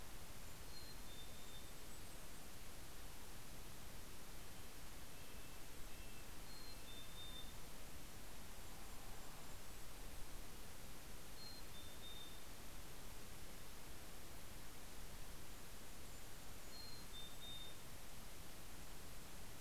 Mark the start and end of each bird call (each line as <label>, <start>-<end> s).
Golden-crowned Kinglet (Regulus satrapa), 0.0-3.1 s
Mountain Chickadee (Poecile gambeli), 0.3-2.1 s
Red-breasted Nuthatch (Sitta canadensis), 3.6-7.8 s
Golden-crowned Kinglet (Regulus satrapa), 5.7-10.7 s
Mountain Chickadee (Poecile gambeli), 6.0-7.9 s
Mountain Chickadee (Poecile gambeli), 10.9-13.0 s
Golden-crowned Kinglet (Regulus satrapa), 15.1-17.9 s
Mountain Chickadee (Poecile gambeli), 16.2-18.4 s